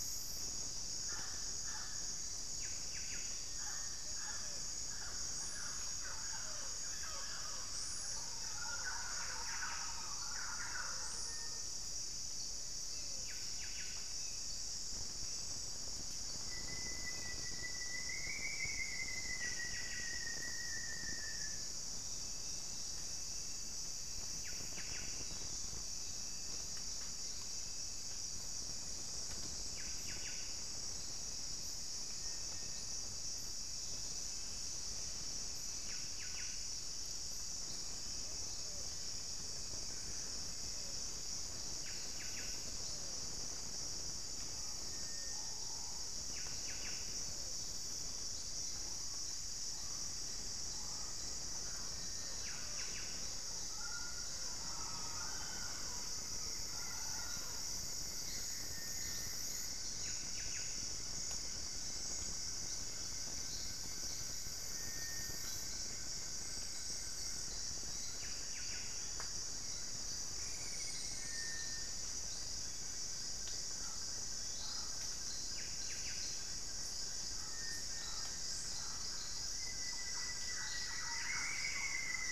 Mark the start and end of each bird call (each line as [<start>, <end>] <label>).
[2.38, 3.58] Buff-breasted Wren (Cantorchilus leucotis)
[3.68, 11.88] Pale-vented Pigeon (Patagioenas cayennensis)
[8.88, 14.28] Buff-breasted Wren (Cantorchilus leucotis)
[16.08, 22.88] Rufous-fronted Antthrush (Formicarius rufifrons)
[19.18, 36.78] Buff-breasted Wren (Cantorchilus leucotis)
[31.98, 45.88] Cinereous Tinamou (Crypturellus cinereus)
[41.68, 47.38] Buff-breasted Wren (Cantorchilus leucotis)
[52.08, 53.48] Buff-breasted Wren (Cantorchilus leucotis)
[52.08, 58.18] Mealy Parrot (Amazona farinosa)
[56.28, 57.98] White-flanked Antwren (Myrmotherula axillaris)
[58.18, 59.58] unidentified bird
[59.68, 60.98] Buff-breasted Wren (Cantorchilus leucotis)
[59.78, 81.68] Black-fronted Nunbird (Monasa nigrifrons)
[67.98, 69.18] Buff-breasted Wren (Cantorchilus leucotis)
[73.68, 82.31] Mealy Parrot (Amazona farinosa)
[75.38, 76.68] Buff-breasted Wren (Cantorchilus leucotis)
[79.18, 82.31] Rufous-fronted Antthrush (Formicarius rufifrons)
[79.68, 82.28] Thrush-like Wren (Campylorhynchus turdinus)
[80.78, 82.28] Buff-breasted Wren (Cantorchilus leucotis)